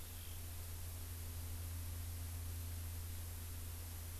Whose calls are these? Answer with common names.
Eurasian Skylark